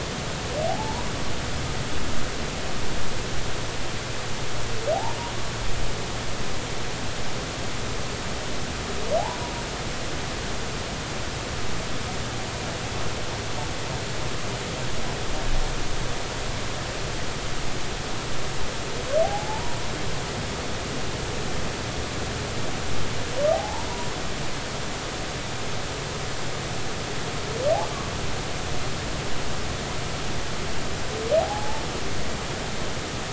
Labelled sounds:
0.6	1.1	humpback whale, 0.80 to 1.0 kHz
19.2	19.9	humpback whale, 0.80 to 1.1 kHz
23.5	23.9	humpback whale, 0.80 to 1.0 kHz
32.4	32.8	humpback whale, 0.80 to 0.93 kHz

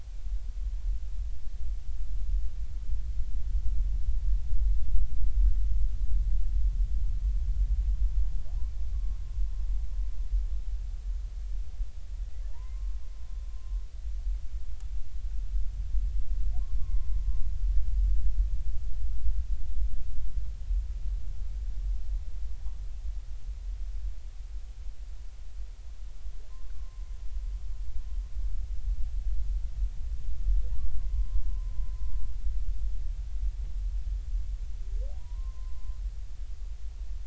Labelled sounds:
8.9	9.2	humpback whale, 1.1 to 1.2 kHz
12.5	13.0	humpback whale, 0.86 to 1.1 kHz
16.8	17.2	humpback whale, 0.99 to 1.2 kHz
26.7	27.0	humpback whale, 0.99 to 1.2 kHz
31.0	31.7	humpback whale, 0.96 to 1.1 kHz
35.2	36.0	humpback whale, 0.93 to 1.1 kHz

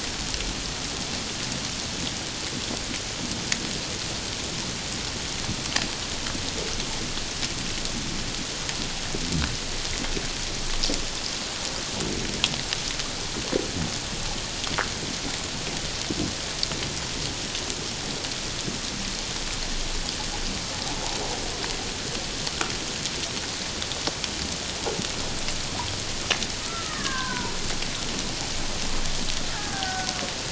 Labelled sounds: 26.7	27.6	killer whale, Bigg's (transient), 0.88 to 1.9 kHz
29.5	30.1	killer whale, Bigg's (transient), 0.78 to 1.8 kHz

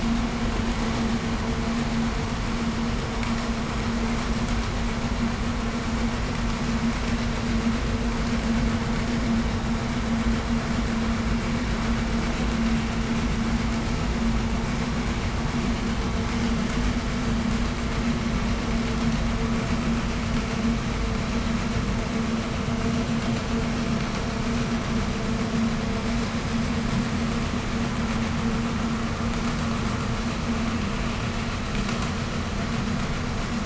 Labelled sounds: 3.1	3.4	vessel noise, 2.0 to 8.0 kHz
20.3	28.6	vessel noise, 0 to 1.5 kHz

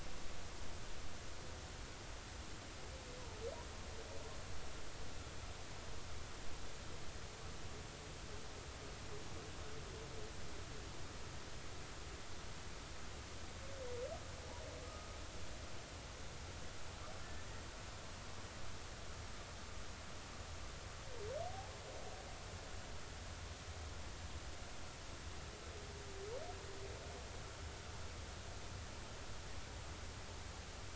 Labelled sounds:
14.8	15.1	humpback whale, 1.2 to 1.3 kHz
17.2	17.6	humpback whale, 1.7 to 2.0 kHz

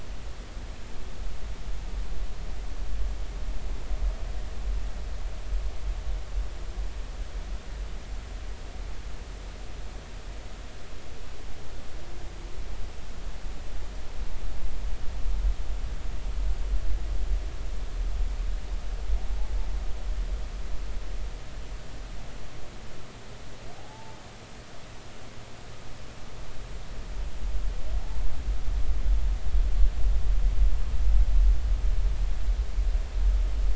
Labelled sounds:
23.8	24.2	humpback whale, 0.80 to 0.93 kHz

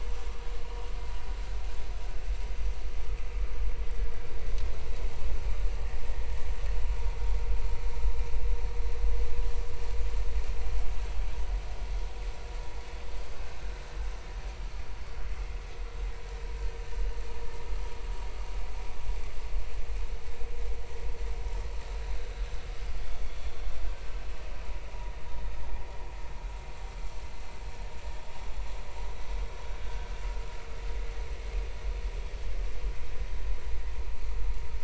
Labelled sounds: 29.8	30.1	vessel noise, 1.4 to 1.6 kHz

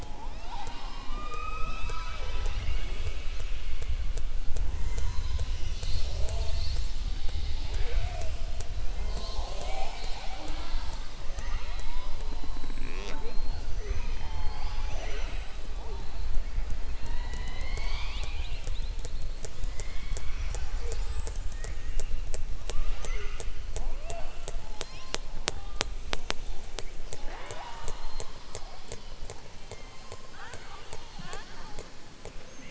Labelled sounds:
11.3	12.1	killer whale, southern resident, 0.91 to 4.1 kHz

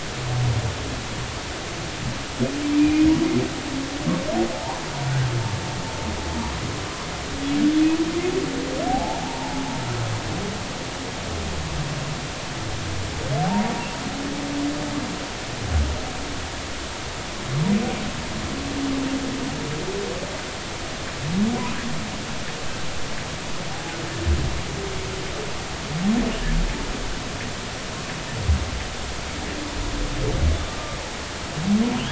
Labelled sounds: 2.8	3.1	humpback whale, 2.3 to 2.5 kHz
4.5	4.8	humpback whale, 0.80 to 1.1 kHz
8.9	9.6	humpback whale, 0.80 to 0.99 kHz
13.4	13.7	humpback whale, 0.80 to 0.99 kHz

